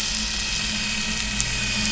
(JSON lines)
{"label": "anthrophony, boat engine", "recorder": "SoundTrap 500"}